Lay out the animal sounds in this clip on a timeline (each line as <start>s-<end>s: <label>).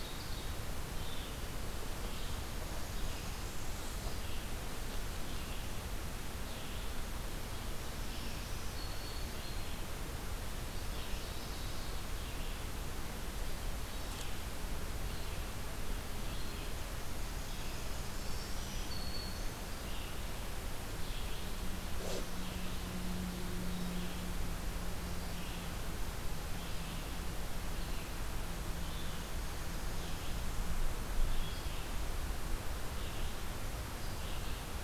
0.0s-0.6s: Ovenbird (Seiurus aurocapilla)
0.0s-34.8s: Red-eyed Vireo (Vireo olivaceus)
2.0s-4.3s: Blackburnian Warbler (Setophaga fusca)
8.0s-9.8s: Black-throated Green Warbler (Setophaga virens)
10.5s-12.1s: Ovenbird (Seiurus aurocapilla)
16.5s-18.8s: Blackburnian Warbler (Setophaga fusca)
17.9s-19.8s: Black-throated Green Warbler (Setophaga virens)
29.0s-30.9s: Blackburnian Warbler (Setophaga fusca)